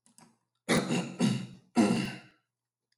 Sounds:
Throat clearing